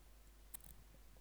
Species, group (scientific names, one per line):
Phaneroptera falcata
Orthoptera